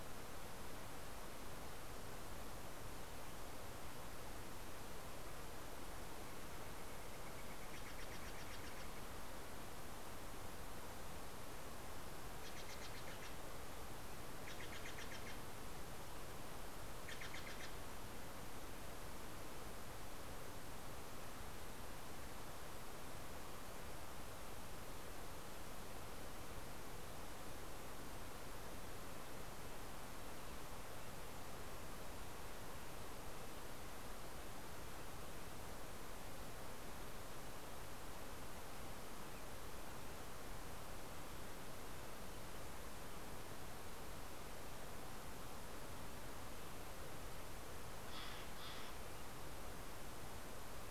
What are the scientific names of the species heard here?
Cyanocitta stelleri